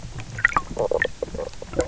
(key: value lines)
label: biophony, stridulation
recorder: SoundTrap 300